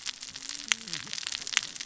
{"label": "biophony, cascading saw", "recorder": "SoundTrap 600 or HydroMoth"}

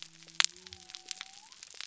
{"label": "biophony", "recorder": "SoundTrap 300"}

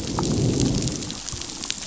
{"label": "biophony, growl", "recorder": "SoundTrap 500"}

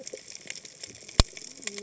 {"label": "biophony, cascading saw", "recorder": "HydroMoth"}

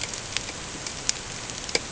{"label": "ambient", "recorder": "HydroMoth"}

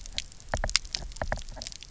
{"label": "biophony, knock", "recorder": "SoundTrap 300"}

